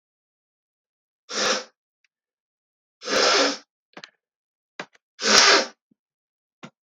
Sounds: Sniff